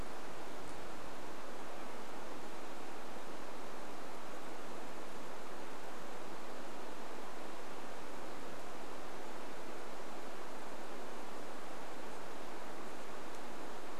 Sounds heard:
forest ambience